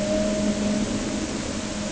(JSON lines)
{"label": "anthrophony, boat engine", "recorder": "HydroMoth"}